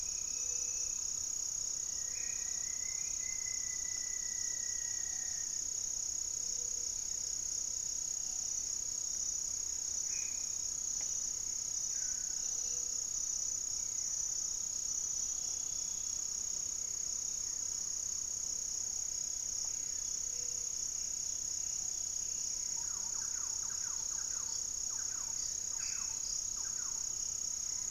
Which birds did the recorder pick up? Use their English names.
Black-faced Antthrush, Great Antshrike, Gray-fronted Dove, Rufous-fronted Antthrush, unidentified bird, Plain-winged Antshrike, Buff-breasted Wren, Thrush-like Wren